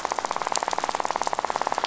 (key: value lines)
label: biophony, rattle
recorder: SoundTrap 500